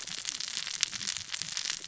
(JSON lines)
{"label": "biophony, cascading saw", "recorder": "SoundTrap 600 or HydroMoth"}